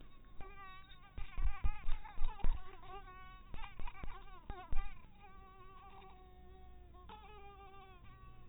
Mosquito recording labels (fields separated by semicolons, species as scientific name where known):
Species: mosquito; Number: one; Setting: cup